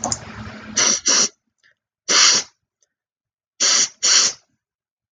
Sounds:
Sniff